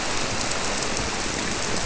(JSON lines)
{"label": "biophony", "recorder": "SoundTrap 300"}